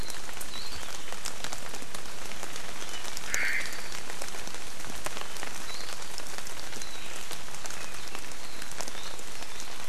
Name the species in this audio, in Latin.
Zosterops japonicus, Myadestes obscurus